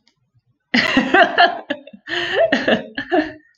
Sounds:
Laughter